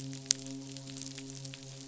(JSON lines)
{"label": "biophony, midshipman", "recorder": "SoundTrap 500"}